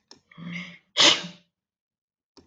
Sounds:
Sneeze